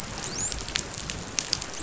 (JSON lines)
{"label": "biophony, dolphin", "recorder": "SoundTrap 500"}